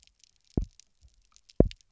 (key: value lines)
label: biophony, double pulse
recorder: SoundTrap 300